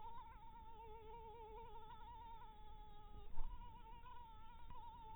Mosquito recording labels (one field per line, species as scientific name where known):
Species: Anopheles harrisoni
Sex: female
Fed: blood-fed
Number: one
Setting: cup